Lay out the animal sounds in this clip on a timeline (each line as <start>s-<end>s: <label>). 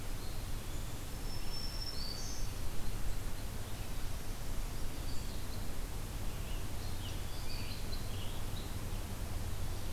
0.0s-1.2s: Eastern Wood-Pewee (Contopus virens)
0.7s-2.6s: Black-throated Green Warbler (Setophaga virens)
6.0s-8.5s: Scarlet Tanager (Piranga olivacea)
7.1s-8.8s: unidentified call